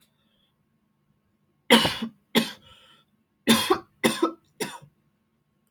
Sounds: Cough